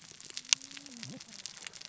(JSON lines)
{"label": "biophony, cascading saw", "recorder": "SoundTrap 600 or HydroMoth"}